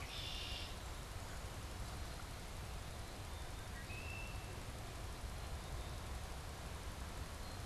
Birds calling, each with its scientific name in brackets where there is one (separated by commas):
Red-winged Blackbird (Agelaius phoeniceus), Black-capped Chickadee (Poecile atricapillus)